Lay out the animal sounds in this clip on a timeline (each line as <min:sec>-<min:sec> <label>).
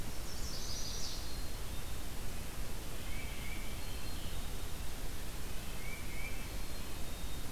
0:00.2-0:01.4 Chestnut-sided Warbler (Setophaga pensylvanica)
0:01.2-0:02.1 Black-capped Chickadee (Poecile atricapillus)
0:02.8-0:03.8 Tufted Titmouse (Baeolophus bicolor)
0:03.8-0:05.0 Black-capped Chickadee (Poecile atricapillus)
0:05.6-0:06.7 Tufted Titmouse (Baeolophus bicolor)
0:06.3-0:07.5 Black-capped Chickadee (Poecile atricapillus)